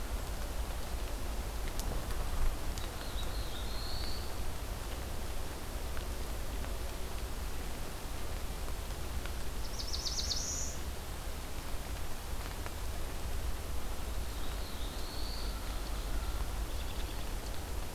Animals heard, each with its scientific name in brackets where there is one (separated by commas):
Black-throated Blue Warbler (Setophaga caerulescens), American Robin (Turdus migratorius), Ovenbird (Seiurus aurocapilla)